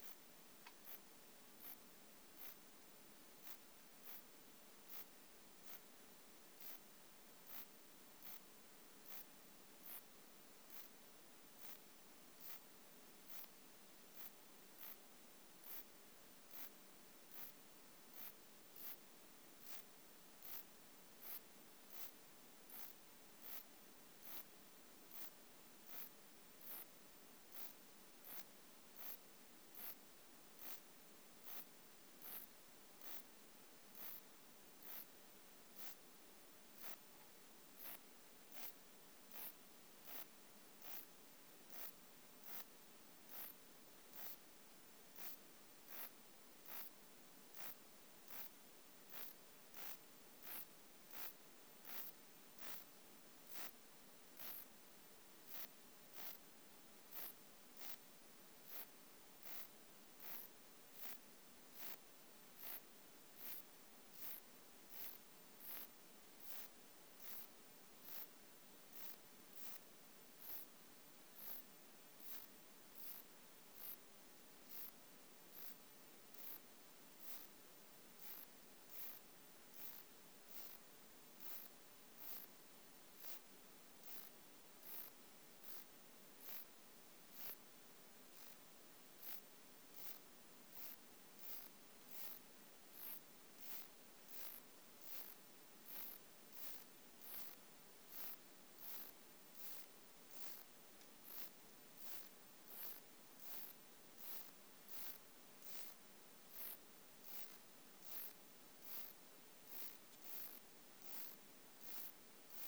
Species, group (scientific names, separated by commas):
Pseudosubria bispinosa, Orthoptera